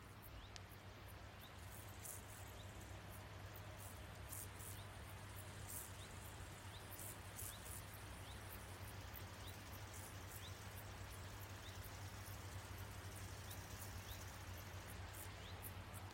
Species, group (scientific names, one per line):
Chorthippus brunneus
Orthoptera